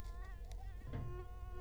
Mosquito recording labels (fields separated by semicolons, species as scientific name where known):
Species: Culex quinquefasciatus; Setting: cup